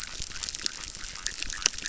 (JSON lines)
{"label": "biophony, chorus", "recorder": "SoundTrap 600"}